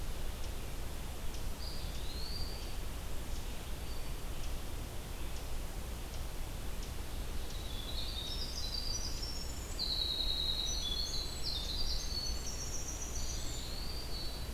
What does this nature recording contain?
Eastern Wood-Pewee, Winter Wren